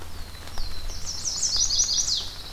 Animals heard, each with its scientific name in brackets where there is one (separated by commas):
Chestnut-sided Warbler (Setophaga pensylvanica), Black-throated Blue Warbler (Setophaga caerulescens)